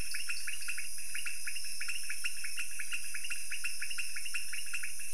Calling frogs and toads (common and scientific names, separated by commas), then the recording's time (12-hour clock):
dwarf tree frog (Dendropsophus nanus), pointedbelly frog (Leptodactylus podicipinus)
3:00am